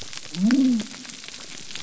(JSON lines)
{"label": "biophony", "recorder": "SoundTrap 300"}